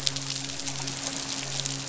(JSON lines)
{"label": "biophony, midshipman", "recorder": "SoundTrap 500"}